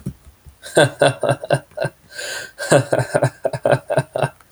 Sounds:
Laughter